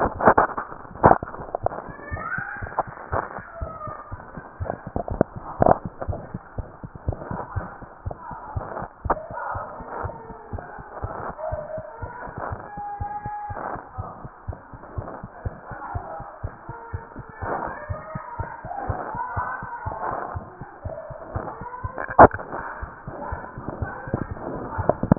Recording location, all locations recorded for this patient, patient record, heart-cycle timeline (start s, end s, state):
mitral valve (MV)
aortic valve (AV)+mitral valve (MV)
#Age: Child
#Sex: Female
#Height: 75.0 cm
#Weight: 10.915 kg
#Pregnancy status: False
#Murmur: Unknown
#Murmur locations: nan
#Most audible location: nan
#Systolic murmur timing: nan
#Systolic murmur shape: nan
#Systolic murmur grading: nan
#Systolic murmur pitch: nan
#Systolic murmur quality: nan
#Diastolic murmur timing: nan
#Diastolic murmur shape: nan
#Diastolic murmur grading: nan
#Diastolic murmur pitch: nan
#Diastolic murmur quality: nan
#Outcome: Abnormal
#Campaign: 2015 screening campaign
0.00	14.72	unannotated
14.72	14.78	S2
14.78	14.95	diastole
14.95	15.02	S1
15.02	15.22	systole
15.22	15.28	S2
15.28	15.44	diastole
15.44	15.50	S1
15.50	15.68	systole
15.68	15.76	S2
15.76	15.93	diastole
15.93	15.99	S1
15.99	16.19	systole
16.19	16.24	S2
16.24	16.42	diastole
16.42	16.48	S1
16.48	16.67	systole
16.67	16.73	S2
16.73	16.92	diastole
16.92	16.98	S1
16.98	17.17	systole
17.17	17.23	S2
17.23	17.39	diastole
17.39	17.47	S1
17.47	17.63	systole
17.63	17.72	S2
17.72	17.88	diastole
17.88	17.94	S1
17.94	18.13	systole
18.13	18.19	S2
18.19	18.37	diastole
18.37	18.44	S1
18.44	18.66	systole
18.66	25.18	unannotated